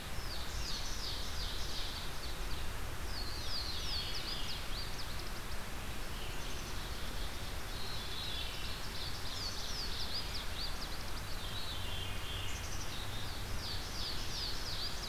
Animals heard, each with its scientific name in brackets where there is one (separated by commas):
Black-capped Chickadee (Poecile atricapillus), Ovenbird (Seiurus aurocapilla), Veery (Catharus fuscescens), Louisiana Waterthrush (Parkesia motacilla)